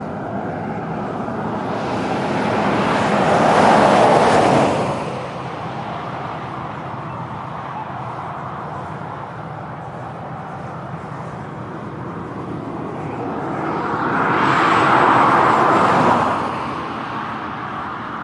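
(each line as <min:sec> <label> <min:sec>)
0:00.0 Street noise is heard silently in the distance outdoors. 0:18.2
0:00.0 A car driving closely by. 0:05.4
0:00.0 A siren howls in the distance outdoors. 0:01.0
0:11.4 A car drives closely by. 0:18.2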